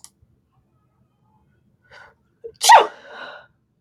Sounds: Sneeze